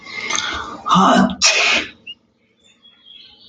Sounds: Sneeze